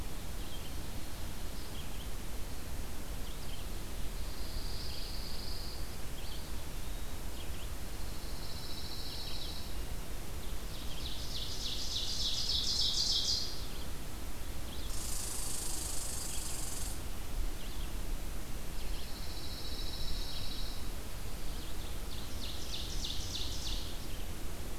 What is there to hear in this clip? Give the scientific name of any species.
Vireo olivaceus, Setophaga pinus, Seiurus aurocapilla, Tamiasciurus hudsonicus